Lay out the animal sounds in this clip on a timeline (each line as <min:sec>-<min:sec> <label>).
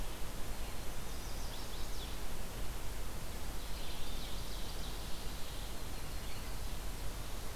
0:01.0-0:02.3 Chestnut-sided Warbler (Setophaga pensylvanica)
0:03.3-0:05.7 Ovenbird (Seiurus aurocapilla)
0:05.1-0:06.7 Yellow-rumped Warbler (Setophaga coronata)